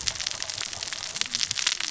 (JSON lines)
{"label": "biophony, cascading saw", "recorder": "SoundTrap 600 or HydroMoth"}